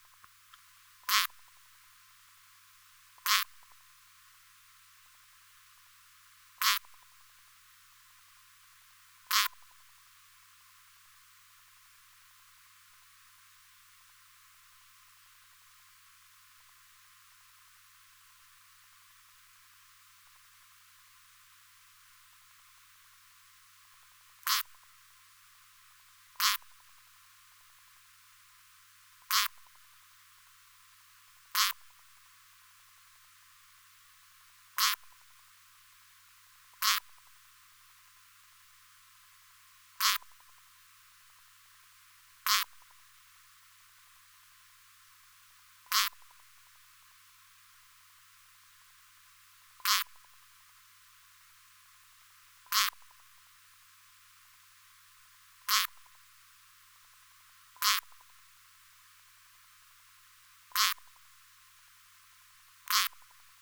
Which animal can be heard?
Poecilimon thessalicus, an orthopteran